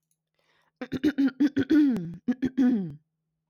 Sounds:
Throat clearing